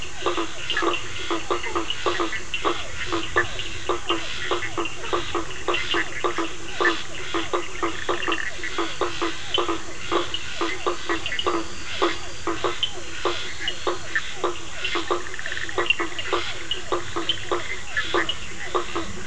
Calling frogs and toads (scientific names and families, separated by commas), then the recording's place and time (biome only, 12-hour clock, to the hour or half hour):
Boana faber (Hylidae), Physalaemus cuvieri (Leptodactylidae), Boana bischoffi (Hylidae)
Atlantic Forest, 9pm